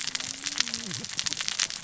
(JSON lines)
{"label": "biophony, cascading saw", "recorder": "SoundTrap 600 or HydroMoth"}